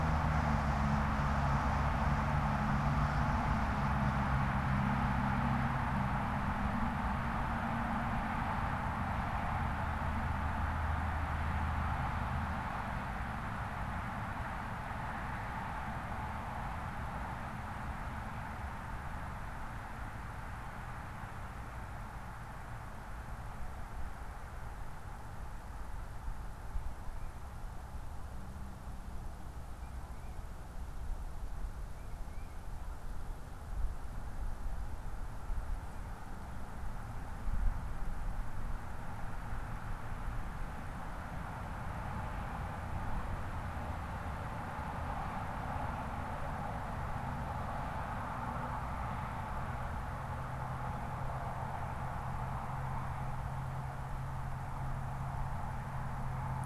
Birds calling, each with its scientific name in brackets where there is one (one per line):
Tufted Titmouse (Baeolophus bicolor)